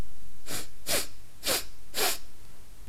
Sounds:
Sniff